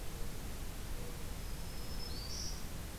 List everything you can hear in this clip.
Black-throated Green Warbler